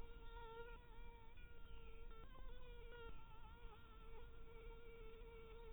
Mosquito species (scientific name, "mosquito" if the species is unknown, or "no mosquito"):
Anopheles dirus